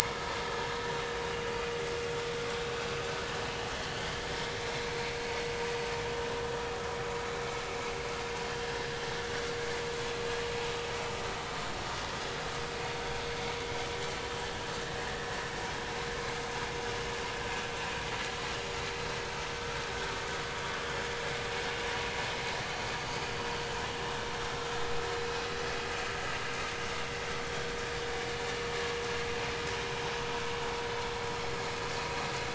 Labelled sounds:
0.2	0.5	vessel noise, 0.90 to 1.0 kHz
2.7	3.0	vessel noise, 2.5 to 2.7 kHz
4.8	5.1	vessel noise, 2.2 to 2.5 kHz
23.3	23.6	vessel noise, 4.5 to 4.8 kHz

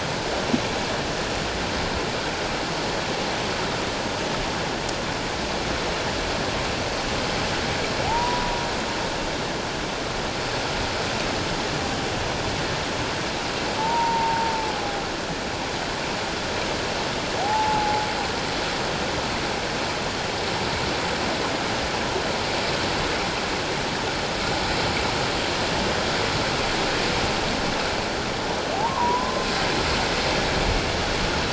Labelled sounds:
8.0	8.6	humpback whale, 0.78 to 1.0 kHz
13.8	15.0	humpback whale, 0.78 to 1.0 kHz
17.4	18.0	humpback whale, 0.78 to 0.97 kHz
28.7	29.4	humpback whale, 0.78 to 1.2 kHz

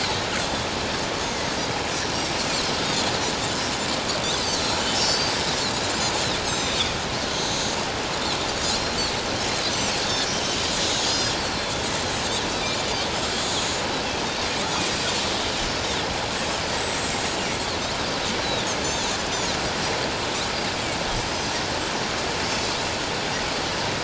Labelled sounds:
4.9	5.4	Pacific white-sided dolphin, 4.3 to 6.3 kHz
6.4	7.6	Pacific white-sided dolphin, 3.3 to 7.8 kHz
8.7	10.0	Pacific white-sided dolphin, 3.7 to 7.8 kHz
11.0	11.8	Pacific white-sided dolphin, 4.2 to 5.8 kHz
14.9	15.2	Pacific white-sided dolphin, 6.9 to 7.4 kHz
16.8	17.4	Pacific white-sided dolphin, 7.3 to 7.8 kHz
18.4	18.7	Pacific white-sided dolphin, 3.3 to 4.2 kHz

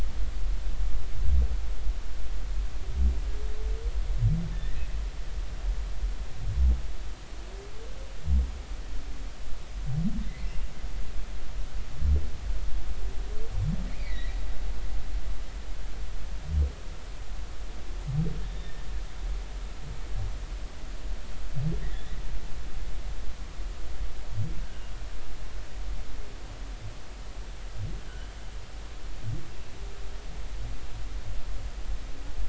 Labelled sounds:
4.5	4.8	humpback whale, 1.7 to 2.0 kHz
14.9	15.3	humpback whale, 1.9 to 2.5 kHz
18.5	18.7	humpback whale, 3.5 to 3.7 kHz
21.8	22.1	humpback whale, 1.7 to 2.1 kHz

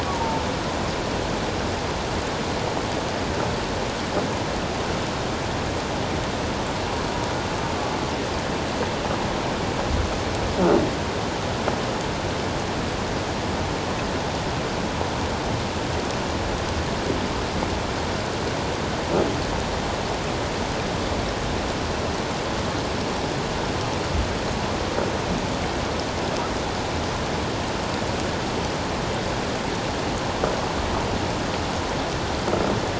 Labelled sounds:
0.1	0.4	humpback whale, 0.84 to 0.97 kHz

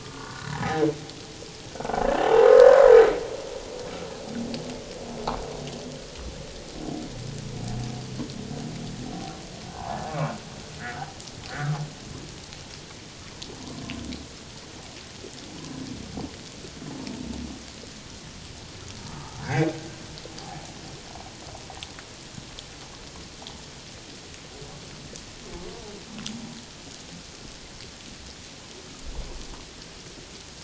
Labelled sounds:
0.0	0.9	humpback whale, 0.78 to 1.6 kHz
1.7	2.7	humpback whale, 0.78 to 1.6 kHz
9.8	10.0	humpback whale, 0.78 to 1.1 kHz
11.5	11.8	humpback whale, 1.1 to 2.1 kHz
19.0	19.7	humpback whale, 1.1 to 1.8 kHz

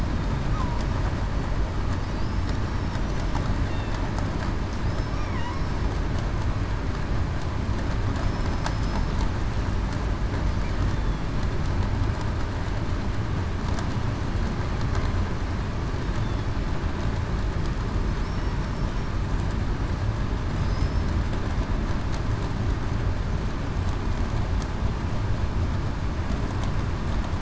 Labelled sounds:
2.0	2.4	killer whale, southern resident, 4.6 to 5.0 kHz
5.4	5.7	killer whale, southern resident, 5.3 to 5.4 kHz
8.7	9.1	killer whale, southern resident, 5.1 to 5.3 kHz
20.6	21.1	killer whale, southern resident, 4.9 to 5.4 kHz

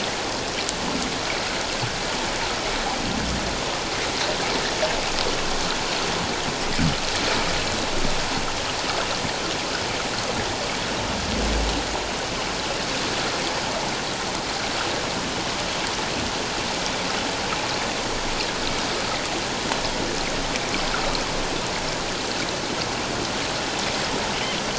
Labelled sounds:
20.9	21.2	water noise, 1.2 to 1.6 kHz

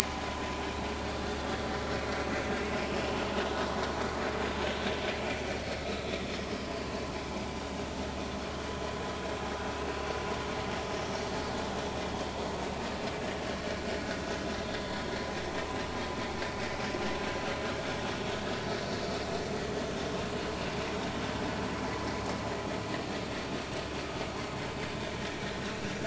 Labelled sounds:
1.0	1.7	vessel noise, 0.93 to 1.1 kHz
5.8	6.1	vessel noise, 3.8 to 4.0 kHz
9.8	10.1	vessel noise, 2.6 to 2.8 kHz
14.5	14.8	vessel noise, 3.6 to 3.7 kHz

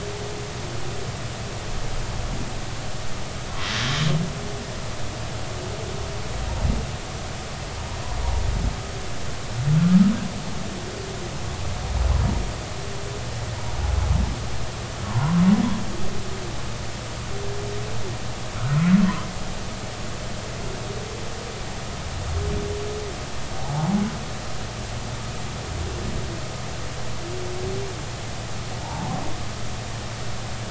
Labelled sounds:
15.0	15.4	humpback whale, 0.90 to 1.2 kHz
18.6	18.8	humpback whale, 1.2 to 1.5 kHz
28.8	29.2	humpback whale, 0.80 to 0.99 kHz

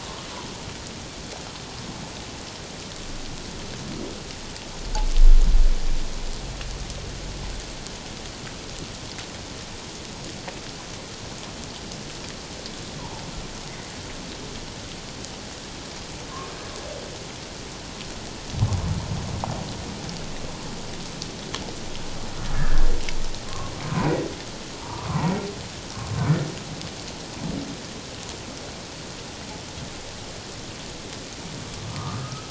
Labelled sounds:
13.0	13.2	humpback whale, 0.81 to 1.1 kHz
22.5	22.9	humpback whale, 1.5 to 1.8 kHz
23.5	24.1	humpback whale, 0.88 to 1.2 kHz
24.8	25.4	humpback whale, 0.84 to 1.2 kHz
31.9	32.4	humpback whale, 0.94 to 1.3 kHz

